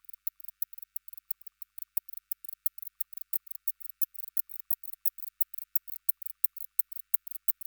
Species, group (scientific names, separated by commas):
Barbitistes kaltenbachi, Orthoptera